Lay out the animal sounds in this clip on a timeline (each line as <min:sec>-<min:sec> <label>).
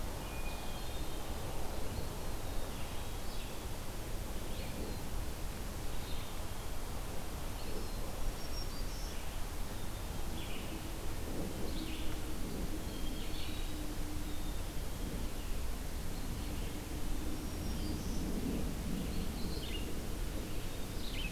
0:00.0-0:21.3 Red-eyed Vireo (Vireo olivaceus)
0:00.1-0:01.4 Hermit Thrush (Catharus guttatus)
0:02.3-0:03.3 Black-capped Chickadee (Poecile atricapillus)
0:07.9-0:09.1 Black-throated Green Warbler (Setophaga virens)
0:12.7-0:14.0 Hermit Thrush (Catharus guttatus)
0:14.2-0:15.3 Black-capped Chickadee (Poecile atricapillus)
0:17.2-0:18.3 Black-throated Green Warbler (Setophaga virens)